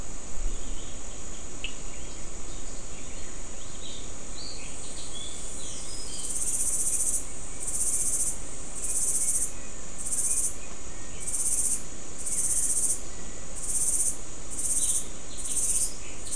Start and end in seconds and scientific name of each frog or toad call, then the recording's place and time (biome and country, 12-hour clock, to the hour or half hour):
1.6	1.7	Sphaenorhynchus surdus
Atlantic Forest, Brazil, ~7pm